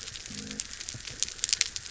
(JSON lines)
{"label": "biophony", "recorder": "SoundTrap 300"}